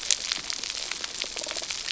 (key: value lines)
label: biophony
recorder: SoundTrap 300